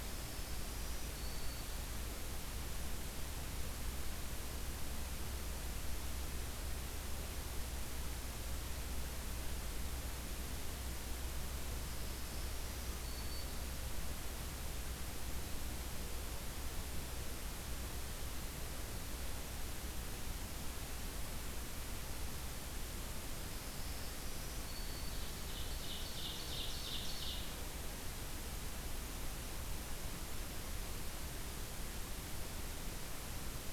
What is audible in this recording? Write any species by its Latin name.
Setophaga virens, Seiurus aurocapilla